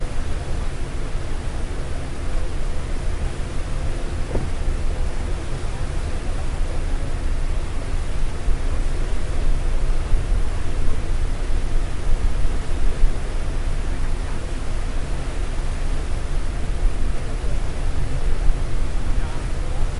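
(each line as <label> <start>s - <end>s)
An engine runs continuously with muffled, unintelligible speech in the background. 0.0s - 20.0s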